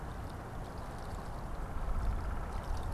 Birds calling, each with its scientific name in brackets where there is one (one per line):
Downy Woodpecker (Dryobates pubescens)